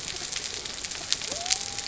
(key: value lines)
label: biophony
recorder: SoundTrap 300